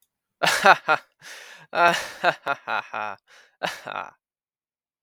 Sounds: Laughter